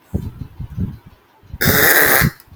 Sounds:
Throat clearing